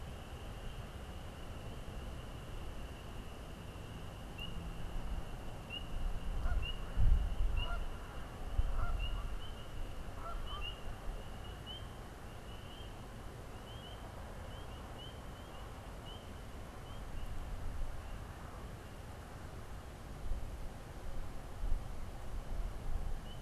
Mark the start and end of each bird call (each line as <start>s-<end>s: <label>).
6.2s-10.7s: Canada Goose (Branta canadensis)